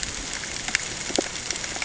{"label": "ambient", "recorder": "HydroMoth"}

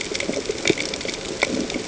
{"label": "ambient", "recorder": "HydroMoth"}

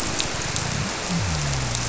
{"label": "biophony", "recorder": "SoundTrap 300"}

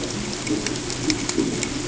{"label": "ambient", "recorder": "HydroMoth"}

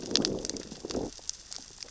{"label": "biophony, growl", "recorder": "SoundTrap 600 or HydroMoth"}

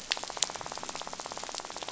{"label": "biophony, rattle", "recorder": "SoundTrap 500"}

